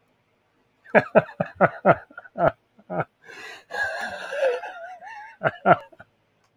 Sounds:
Laughter